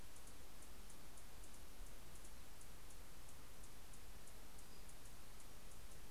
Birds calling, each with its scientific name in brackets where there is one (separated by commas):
Pacific-slope Flycatcher (Empidonax difficilis), Anna's Hummingbird (Calypte anna)